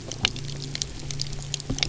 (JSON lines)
{"label": "anthrophony, boat engine", "recorder": "SoundTrap 300"}